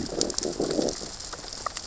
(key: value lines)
label: biophony, growl
recorder: SoundTrap 600 or HydroMoth